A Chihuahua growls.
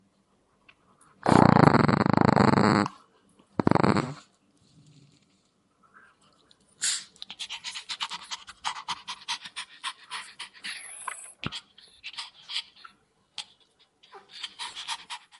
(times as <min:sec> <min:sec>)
0:01.1 0:04.2